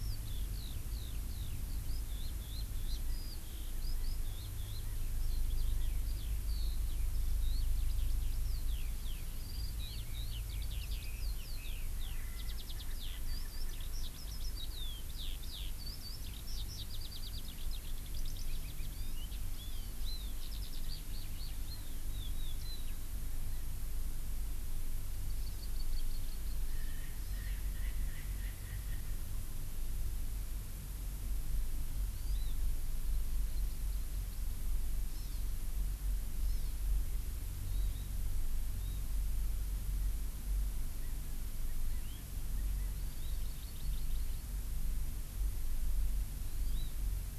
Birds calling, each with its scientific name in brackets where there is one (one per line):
Hawaii Amakihi (Chlorodrepanis virens)
Eurasian Skylark (Alauda arvensis)
Erckel's Francolin (Pternistis erckelii)